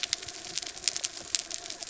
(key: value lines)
label: anthrophony, mechanical
recorder: SoundTrap 300

label: biophony
recorder: SoundTrap 300